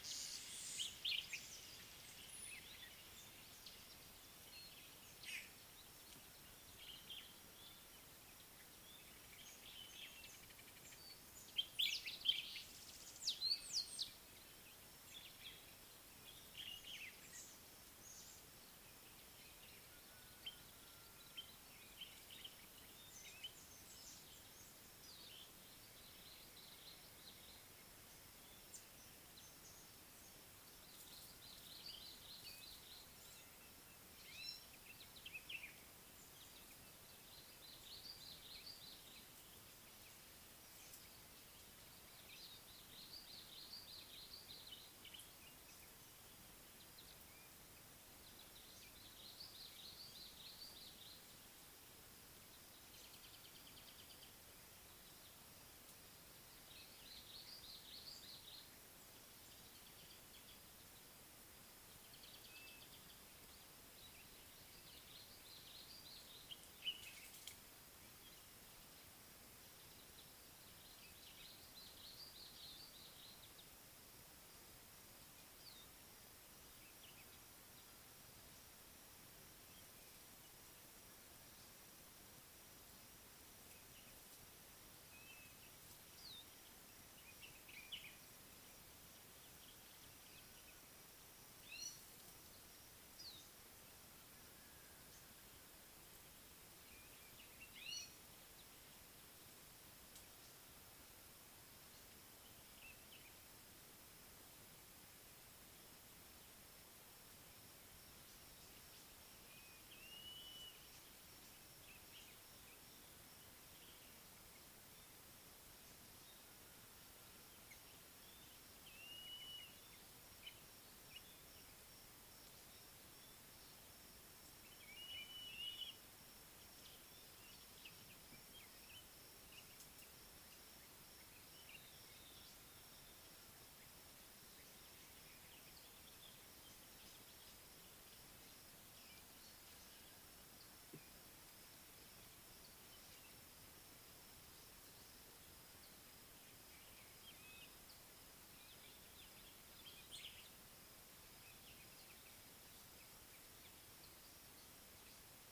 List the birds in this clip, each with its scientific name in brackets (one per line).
Gray-backed Camaroptera (Camaroptera brevicaudata)
Mariqua Sunbird (Cinnyris mariquensis)
Baglafecht Weaver (Ploceus baglafecht)
Red-faced Crombec (Sylvietta whytii)
Common Bulbul (Pycnonotus barbatus)
Blue-naped Mousebird (Urocolius macrourus)